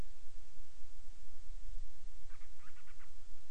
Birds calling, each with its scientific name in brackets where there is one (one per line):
Band-rumped Storm-Petrel (Hydrobates castro)